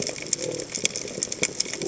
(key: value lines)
label: biophony
recorder: HydroMoth